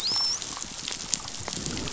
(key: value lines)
label: biophony, dolphin
recorder: SoundTrap 500